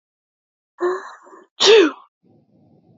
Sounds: Sneeze